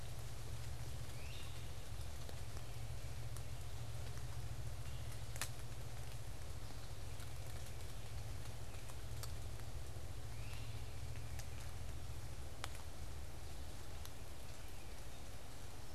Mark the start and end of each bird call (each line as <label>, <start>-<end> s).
Great Crested Flycatcher (Myiarchus crinitus), 1.0-1.8 s
Great Crested Flycatcher (Myiarchus crinitus), 10.2-11.1 s
Tufted Titmouse (Baeolophus bicolor), 10.7-11.8 s